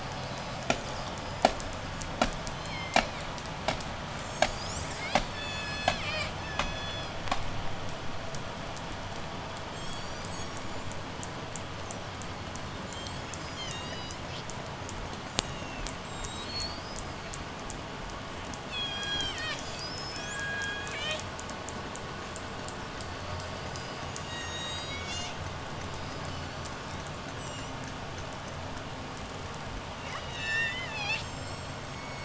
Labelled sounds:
0.0	7.7	killer whale, J pod, 0.08 to 8.0 kHz
5.3	7.3	killer whale, J pod, call S03, 1.4 to 8.0 kHz
9.4	11.1	killer whale, J pod, 3.0 to 8.0 kHz
12.3	17.4	killer whale, J pod, 1.6 to 8.0 kHz
18.6	21.4	killer whale, J pod, call S03, 1.2 to 8.0 kHz
23.7	25.5	killer whale, J pod, call S03, 1.6 to 8.0 kHz
25.6	28.1	killer whale, J pod, 2.6 to 8.0 kHz
30.0	32.2	killer whale, J pod, 0.64 to 8.0 kHz

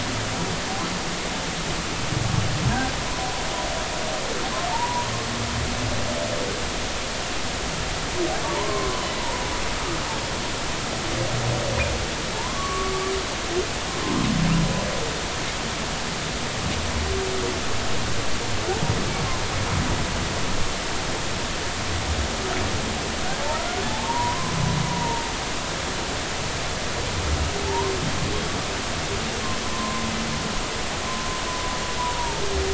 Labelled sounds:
4.7	5.1	humpback whale, 0.83 to 1.0 kHz
8.5	9.5	humpback whale, 0.86 to 1.2 kHz
12.3	12.9	humpback whale, 0.86 to 1.2 kHz
23.4	24.5	humpback whale, 0.80 to 1.2 kHz
24.9	25.2	humpback whale, 0.86 to 1.0 kHz
27.7	28.0	humpback whale, 0.83 to 1.1 kHz
29.6	30.0	humpback whale, 0.96 to 1.1 kHz
32.0	32.4	humpback whale, 0.86 to 1.0 kHz

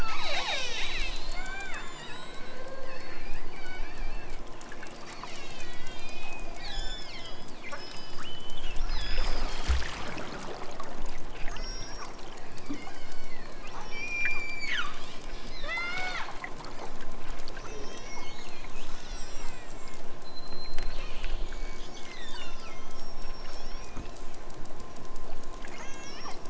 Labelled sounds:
0.0	1.7	killer whale, southern Alaska resident, 0.23 to 7.0 kHz
5.0	9.6	killer whale, southern Alaska resident, 1.1 to 8.0 kHz
11.5	12.2	killer whale, southern Alaska resident, 1.4 to 8.0 kHz
14.0	15.1	killer whale, southern Alaska resident, 0.78 to 8.0 kHz
15.5	16.3	killer whale, southern Alaska resident, 0.41 to 7.1 kHz
17.6	18.2	killer whale, southern Alaska resident, 2.3 to 8.0 kHz
18.8	24.0	killer whale, southern Alaska resident, 1.1 to 8.0 kHz
25.6	26.4	killer whale, southern Alaska resident, 1.3 to 7.3 kHz

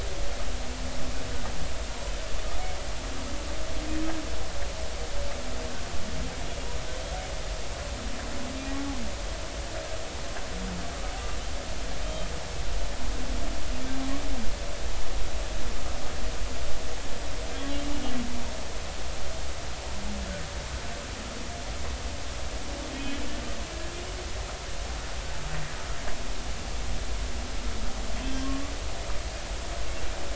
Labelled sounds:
12.0	12.3	humpback whale, 3.0 to 3.2 kHz
17.5	17.9	humpback whale, 3.0 to 3.5 kHz
28.2	28.5	humpback whale, 3.1 to 3.2 kHz

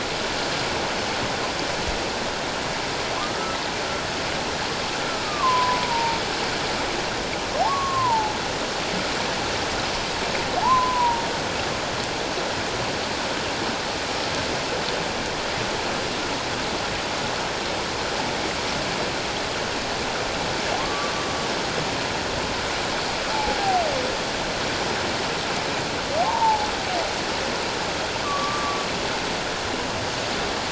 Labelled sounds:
3.2	3.6	humpback whale, 0.97 to 1.4 kHz
5.2	6.2	humpback whale, 0.88 to 1.3 kHz
7.7	8.3	humpback whale, 0.81 to 1.2 kHz
10.6	11.2	humpback whale, 0.78 to 1.1 kHz
20.8	21.1	humpback whale, 1.0 to 1.2 kHz
23.3	23.6	humpback whale, 0.78 to 0.94 kHz
26.2	26.7	humpback whale, 0.78 to 1.1 kHz
28.2	28.8	humpback whale, 1.1 to 1.2 kHz

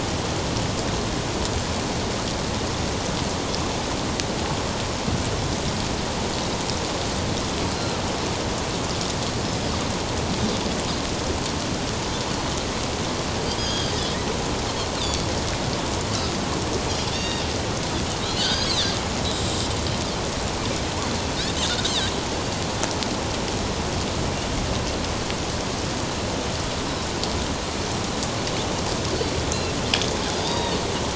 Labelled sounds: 9.4	9.7	Pacific white-sided dolphin, 4.9 to 5.3 kHz
13.6	14.0	Pacific white-sided dolphin, 3.1 to 6.7 kHz
15.0	15.3	Pacific white-sided dolphin, 4.4 to 4.8 kHz
17.1	17.5	Pacific white-sided dolphin, 1.8 to 5.6 kHz
18.2	18.7	Pacific white-sided dolphin, 1.4 to 6.7 kHz
30.3	30.8	Pacific white-sided dolphin, 0.88 to 5.0 kHz

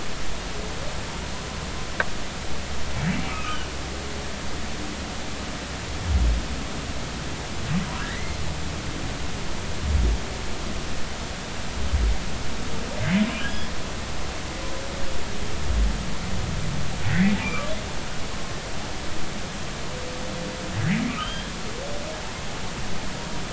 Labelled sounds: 3.3	3.6	humpback whale, 1.1 to 2.6 kHz
8.0	8.4	humpback whale, 1.6 to 2.2 kHz
13.3	13.7	humpback whale, 1.6 to 3.4 kHz
17.1	17.7	humpback whale, 1.1 to 2.3 kHz
21.2	21.5	humpback whale, 1.5 to 3.3 kHz

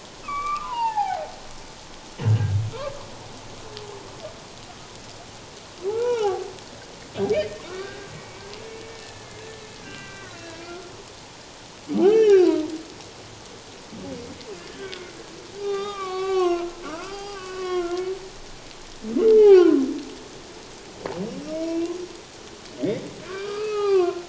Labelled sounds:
0.2	1.3	humpback whale, 0.78 to 2.8 kHz
2.2	2.6	humpback whale, 1.5 to 1.7 kHz
5.9	6.5	humpback whale, 0.78 to 2.5 kHz
7.3	8.5	humpback whale, 1.0 to 2.6 kHz
8.9	9.5	humpback whale, 1.7 to 1.8 kHz
9.8	10.9	humpback whale, 1.1 to 2.8 kHz
12.0	12.6	humpback whale, 1.2 to 5.8 kHz
14.8	18.0	humpback whale, 0.78 to 4.9 kHz
19.4	19.8	humpback whale, 0.78 to 3.3 kHz
21.5	21.9	humpback whale, 2.2 to 5.7 kHz
22.8	24.2	humpback whale, 0.78 to 4.3 kHz

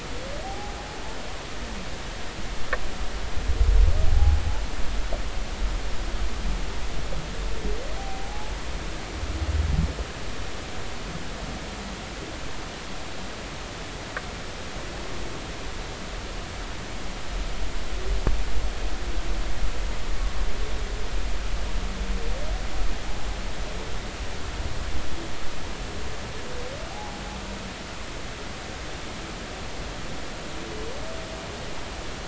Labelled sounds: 0.4	0.7	humpback whale, 0.80 to 0.96 kHz
4.1	4.4	humpback whale, 0.80 to 0.86 kHz
8.0	8.5	humpback whale, 0.80 to 0.90 kHz
26.9	27.2	humpback whale, 0.80 to 0.96 kHz

